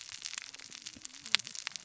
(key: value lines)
label: biophony, cascading saw
recorder: SoundTrap 600 or HydroMoth